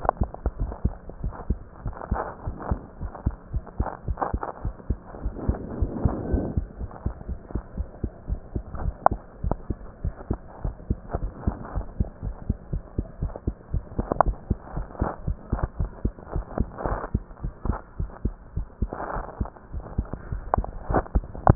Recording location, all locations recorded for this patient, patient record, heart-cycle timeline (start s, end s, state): mitral valve (MV)
aortic valve (AV)+pulmonary valve (PV)+tricuspid valve (TV)+mitral valve (MV)
#Age: Child
#Sex: Female
#Height: 124.0 cm
#Weight: 21.3 kg
#Pregnancy status: False
#Murmur: Absent
#Murmur locations: nan
#Most audible location: nan
#Systolic murmur timing: nan
#Systolic murmur shape: nan
#Systolic murmur grading: nan
#Systolic murmur pitch: nan
#Systolic murmur quality: nan
#Diastolic murmur timing: nan
#Diastolic murmur shape: nan
#Diastolic murmur grading: nan
#Diastolic murmur pitch: nan
#Diastolic murmur quality: nan
#Outcome: Normal
#Campaign: 2015 screening campaign
0.00	6.78	unannotated
6.78	6.88	S1
6.88	7.02	systole
7.02	7.14	S2
7.14	7.28	diastole
7.28	7.38	S1
7.38	7.54	systole
7.54	7.62	S2
7.62	7.78	diastole
7.78	7.88	S1
7.88	8.02	systole
8.02	8.12	S2
8.12	8.30	diastole
8.30	8.40	S1
8.40	8.54	systole
8.54	8.64	S2
8.64	8.82	diastole
8.82	8.96	S1
8.96	9.12	systole
9.12	9.22	S2
9.22	9.44	diastole
9.44	9.58	S1
9.58	9.70	systole
9.70	9.80	S2
9.80	10.04	diastole
10.04	10.14	S1
10.14	10.26	systole
10.26	10.38	S2
10.38	10.62	diastole
10.62	10.76	S1
10.76	10.86	systole
10.86	10.98	S2
10.98	11.18	diastole
11.18	11.32	S1
11.32	11.44	systole
11.44	11.56	S2
11.56	11.74	diastole
11.74	11.88	S1
11.88	11.98	systole
11.98	12.08	S2
12.08	12.24	diastole
12.24	12.36	S1
12.36	12.48	systole
12.48	12.58	S2
12.58	12.74	diastole
12.74	12.84	S1
12.84	12.94	systole
12.94	13.06	S2
13.06	13.22	diastole
13.22	13.34	S1
13.34	13.46	systole
13.46	13.56	S2
13.56	13.72	diastole
13.72	13.84	S1
13.84	21.55	unannotated